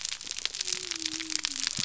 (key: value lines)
label: biophony
recorder: SoundTrap 300